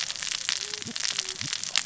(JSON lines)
{"label": "biophony, cascading saw", "recorder": "SoundTrap 600 or HydroMoth"}